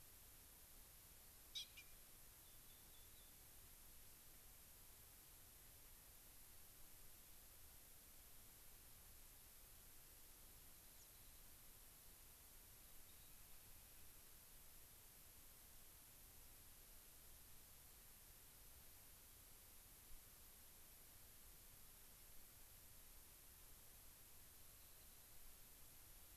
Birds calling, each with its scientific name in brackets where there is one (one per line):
unidentified bird
Rock Wren (Salpinctes obsoletus)